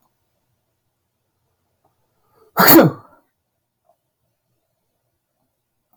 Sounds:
Sneeze